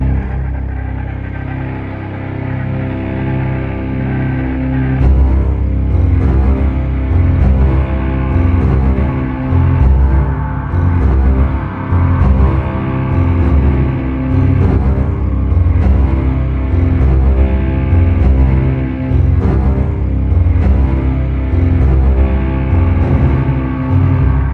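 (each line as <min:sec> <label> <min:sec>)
0:00.0 Metal grinding sounds with varying volume. 0:24.5
0:00.0 Synthetic melody plays with compressed sound, starting at low volume and steadily increasing, creating an unpleasant, sci-fi feeling. 0:24.5
0:05.0 Bass drum playing a steady rhythm. 0:24.5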